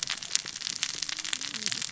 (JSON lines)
{"label": "biophony, cascading saw", "recorder": "SoundTrap 600 or HydroMoth"}